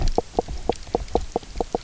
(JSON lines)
{"label": "biophony, knock croak", "recorder": "SoundTrap 300"}